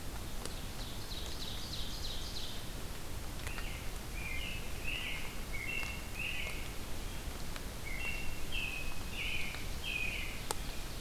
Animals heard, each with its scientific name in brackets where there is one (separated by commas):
American Robin (Turdus migratorius), Ovenbird (Seiurus aurocapilla)